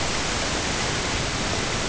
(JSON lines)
{"label": "ambient", "recorder": "HydroMoth"}